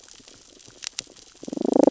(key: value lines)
label: biophony, damselfish
recorder: SoundTrap 600 or HydroMoth